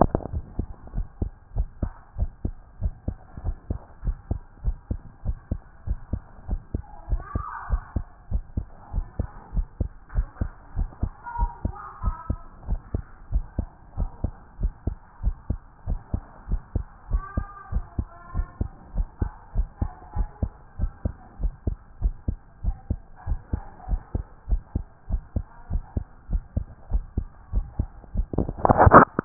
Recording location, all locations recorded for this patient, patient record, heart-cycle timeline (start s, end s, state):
pulmonary valve (PV)
aortic valve (AV)+pulmonary valve (PV)+tricuspid valve (TV)+mitral valve (MV)
#Age: Child
#Sex: Male
#Height: 139.0 cm
#Weight: 36.6 kg
#Pregnancy status: False
#Murmur: Absent
#Murmur locations: nan
#Most audible location: nan
#Systolic murmur timing: nan
#Systolic murmur shape: nan
#Systolic murmur grading: nan
#Systolic murmur pitch: nan
#Systolic murmur quality: nan
#Diastolic murmur timing: nan
#Diastolic murmur shape: nan
#Diastolic murmur grading: nan
#Diastolic murmur pitch: nan
#Diastolic murmur quality: nan
#Outcome: Normal
#Campaign: 2014 screening campaign
0.00	0.19	unannotated
0.19	0.32	diastole
0.32	0.44	S1
0.44	0.58	systole
0.58	0.66	S2
0.66	0.94	diastole
0.94	1.06	S1
1.06	1.20	systole
1.20	1.30	S2
1.30	1.56	diastole
1.56	1.68	S1
1.68	1.82	systole
1.82	1.92	S2
1.92	2.18	diastole
2.18	2.30	S1
2.30	2.44	systole
2.44	2.54	S2
2.54	2.82	diastole
2.82	2.94	S1
2.94	3.06	systole
3.06	3.16	S2
3.16	3.44	diastole
3.44	3.56	S1
3.56	3.70	systole
3.70	3.78	S2
3.78	4.04	diastole
4.04	4.16	S1
4.16	4.30	systole
4.30	4.40	S2
4.40	4.64	diastole
4.64	4.76	S1
4.76	4.90	systole
4.90	5.00	S2
5.00	5.26	diastole
5.26	5.38	S1
5.38	5.50	systole
5.50	5.60	S2
5.60	5.86	diastole
5.86	5.98	S1
5.98	6.12	systole
6.12	6.22	S2
6.22	6.48	diastole
6.48	6.60	S1
6.60	6.74	systole
6.74	6.82	S2
6.82	7.10	diastole
7.10	7.22	S1
7.22	7.34	systole
7.34	7.44	S2
7.44	7.70	diastole
7.70	7.82	S1
7.82	7.94	systole
7.94	8.04	S2
8.04	8.32	diastole
8.32	8.44	S1
8.44	8.56	systole
8.56	8.66	S2
8.66	8.94	diastole
8.94	9.06	S1
9.06	9.18	systole
9.18	9.28	S2
9.28	9.54	diastole
9.54	9.66	S1
9.66	9.80	systole
9.80	9.90	S2
9.90	10.14	diastole
10.14	10.28	S1
10.28	10.40	systole
10.40	10.50	S2
10.50	10.76	diastole
10.76	10.88	S1
10.88	11.02	systole
11.02	11.12	S2
11.12	11.38	diastole
11.38	11.50	S1
11.50	11.64	systole
11.64	11.74	S2
11.74	12.04	diastole
12.04	12.16	S1
12.16	12.28	systole
12.28	12.38	S2
12.38	12.68	diastole
12.68	12.80	S1
12.80	12.94	systole
12.94	13.04	S2
13.04	13.32	diastole
13.32	13.44	S1
13.44	13.58	systole
13.58	13.68	S2
13.68	13.98	diastole
13.98	14.10	S1
14.10	14.22	systole
14.22	14.32	S2
14.32	14.60	diastole
14.60	14.72	S1
14.72	14.86	systole
14.86	14.96	S2
14.96	15.24	diastole
15.24	15.36	S1
15.36	15.48	systole
15.48	15.58	S2
15.58	15.88	diastole
15.88	16.00	S1
16.00	16.12	systole
16.12	16.22	S2
16.22	16.50	diastole
16.50	16.62	S1
16.62	16.74	systole
16.74	16.84	S2
16.84	17.10	diastole
17.10	17.24	S1
17.24	17.36	systole
17.36	17.46	S2
17.46	17.72	diastole
17.72	17.84	S1
17.84	17.98	systole
17.98	18.06	S2
18.06	18.34	diastole
18.34	18.46	S1
18.46	18.60	systole
18.60	18.70	S2
18.70	18.96	diastole
18.96	19.08	S1
19.08	19.20	systole
19.20	19.32	S2
19.32	19.56	diastole
19.56	19.68	S1
19.68	19.80	systole
19.80	19.90	S2
19.90	20.16	diastole
20.16	20.28	S1
20.28	20.42	systole
20.42	20.52	S2
20.52	20.80	diastole
20.80	20.92	S1
20.92	21.04	systole
21.04	21.14	S2
21.14	21.42	diastole
21.42	21.54	S1
21.54	21.66	systole
21.66	21.76	S2
21.76	22.02	diastole
22.02	22.14	S1
22.14	22.28	systole
22.28	22.38	S2
22.38	22.64	diastole
22.64	22.76	S1
22.76	22.90	systole
22.90	23.00	S2
23.00	23.28	diastole
23.28	23.40	S1
23.40	23.52	systole
23.52	23.62	S2
23.62	23.90	diastole
23.90	24.02	S1
24.02	24.14	systole
24.14	24.24	S2
24.24	24.50	diastole
24.50	24.62	S1
24.62	24.74	systole
24.74	24.84	S2
24.84	25.10	diastole
25.10	25.22	S1
25.22	25.36	systole
25.36	25.44	S2
25.44	25.70	diastole
25.70	25.82	S1
25.82	25.96	systole
25.96	26.04	S2
26.04	26.30	diastole
26.30	26.42	S1
26.42	26.56	systole
26.56	26.66	S2
26.66	26.92	diastole
26.92	27.04	S1
27.04	27.16	systole
27.16	27.26	S2
27.26	27.54	diastole
27.54	27.66	S1
27.66	27.78	systole
27.78	27.88	S2
27.88	28.16	diastole
28.16	29.25	unannotated